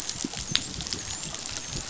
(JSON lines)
{"label": "biophony, dolphin", "recorder": "SoundTrap 500"}